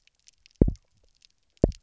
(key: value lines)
label: biophony, double pulse
recorder: SoundTrap 300